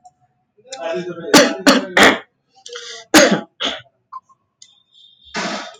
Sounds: Cough